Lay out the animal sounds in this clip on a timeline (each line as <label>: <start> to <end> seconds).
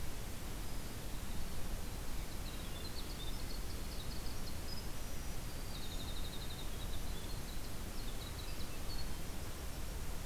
Swainson's Thrush (Catharus ustulatus): 2.2 to 3.1 seconds
Winter Wren (Troglodytes hiemalis): 2.2 to 10.0 seconds
Black-capped Chickadee (Poecile atricapillus): 4.8 to 5.9 seconds